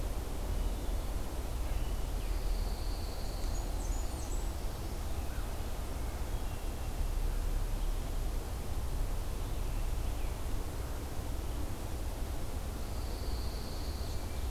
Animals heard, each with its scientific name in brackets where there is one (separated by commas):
Blackburnian Warbler (Setophaga fusca), Hermit Thrush (Catharus guttatus), Pine Warbler (Setophaga pinus)